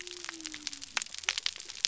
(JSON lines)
{"label": "biophony", "recorder": "SoundTrap 300"}